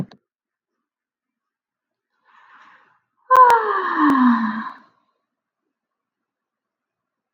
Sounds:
Sigh